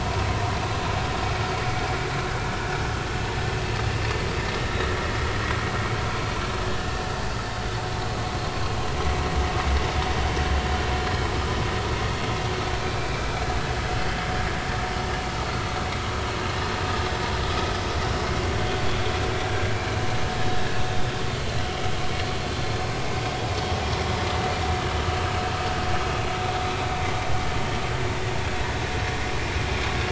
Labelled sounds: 11.0	11.3	vessel noise, 4.1 to 4.3 kHz
12.8	13.2	vessel noise, 2.3 to 2.5 kHz
15.1	15.3	vessel noise, 2.8 to 2.9 kHz

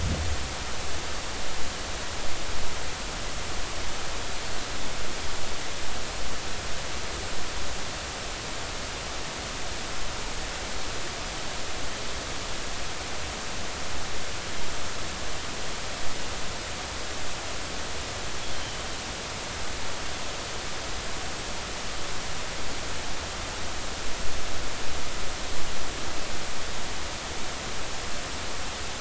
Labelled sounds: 18.5	18.8	Pacific white-sided dolphin, 2.9 to 3.2 kHz

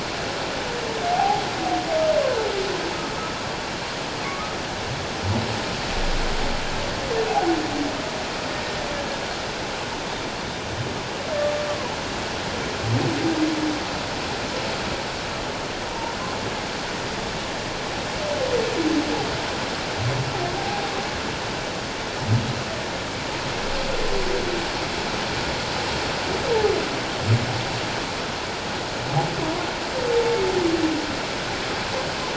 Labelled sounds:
1.1	1.4	humpback whale, 0.78 to 0.91 kHz
4.3	4.6	humpback whale, 1.1 to 1.3 kHz
7.3	7.6	humpback whale, 0.78 to 0.88 kHz
15.9	16.2	humpback whale, 0.88 to 1.1 kHz
20.6	20.8	humpback whale, 0.78 to 0.88 kHz

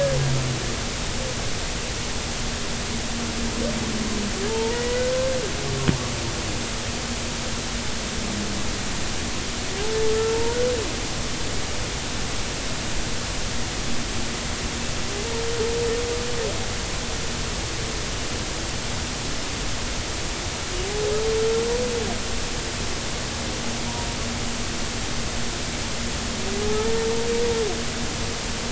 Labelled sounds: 4.5	5.1	humpback whale, 0.83 to 2.0 kHz
10.1	10.6	humpback whale, 0.90 to 1.4 kHz
26.7	26.9	humpback whale, 0.80 to 0.93 kHz

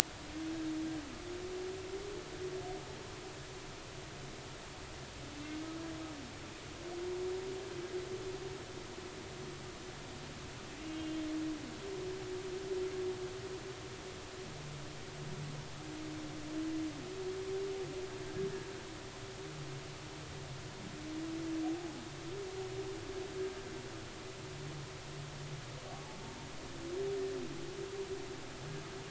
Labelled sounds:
10.8	11.2	humpback whale, 2.7 to 2.9 kHz
25.9	26.5	humpback whale, 0.80 to 1.0 kHz

